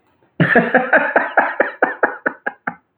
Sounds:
Laughter